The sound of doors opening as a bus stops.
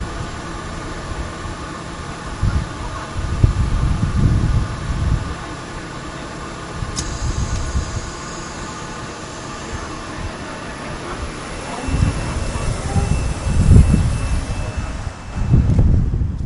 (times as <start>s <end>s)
6.5s 10.7s